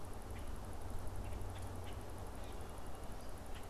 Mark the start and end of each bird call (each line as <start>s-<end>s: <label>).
0.2s-3.7s: Common Grackle (Quiscalus quiscula)